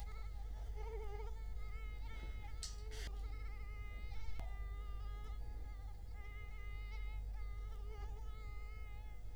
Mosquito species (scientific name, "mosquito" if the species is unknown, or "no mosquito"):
Culex quinquefasciatus